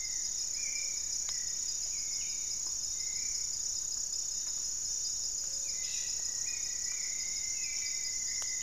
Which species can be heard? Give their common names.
Goeldi's Antbird, Gray-fronted Dove, Hauxwell's Thrush, Rufous-fronted Antthrush